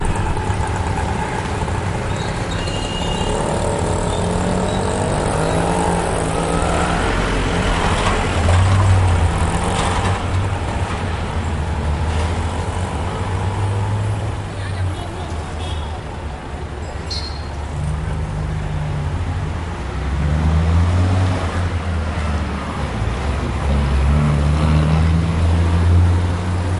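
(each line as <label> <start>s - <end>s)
Birds chirp happily in the distance. 0.0s - 6.3s
A motorcycle engine growls, gradually increasing in intensity. 0.0s - 14.3s
Wind blows restlessly and continuously. 0.0s - 26.8s
A car passes by while a croaking sound is heard. 6.8s - 12.7s
A man shouts muffled in the distance. 14.8s - 16.9s
A car horn honks once sharply. 14.9s - 16.2s
A car horn honks once sharply. 17.1s - 17.4s
A motorcycle engine growls, gradually increasing in intensity. 17.7s - 26.8s
A fly buzzes. 25.8s - 26.8s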